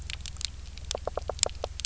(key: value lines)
label: biophony, knock
recorder: SoundTrap 300